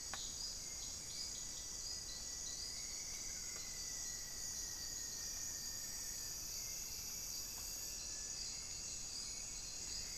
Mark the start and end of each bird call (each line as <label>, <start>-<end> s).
Rufous-fronted Antthrush (Formicarius rufifrons), 0.8-6.4 s
unidentified bird, 2.8-4.3 s
Hauxwell's Thrush (Turdus hauxwelli), 6.6-10.2 s